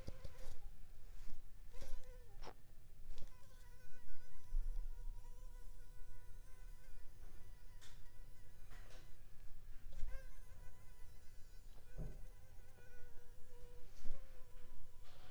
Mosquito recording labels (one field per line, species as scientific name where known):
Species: Anopheles arabiensis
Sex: female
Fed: unfed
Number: one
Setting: cup